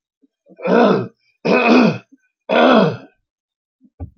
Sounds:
Throat clearing